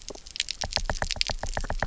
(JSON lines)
{"label": "biophony, knock", "recorder": "SoundTrap 300"}